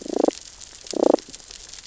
{"label": "biophony, damselfish", "recorder": "SoundTrap 600 or HydroMoth"}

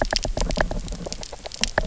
{"label": "biophony, knock", "recorder": "SoundTrap 300"}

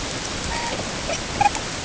{"label": "ambient", "recorder": "HydroMoth"}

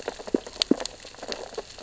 {"label": "biophony, sea urchins (Echinidae)", "recorder": "SoundTrap 600 or HydroMoth"}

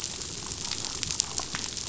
{"label": "biophony, damselfish", "recorder": "SoundTrap 500"}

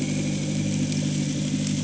{"label": "anthrophony, boat engine", "recorder": "HydroMoth"}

